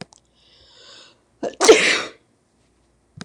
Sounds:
Sneeze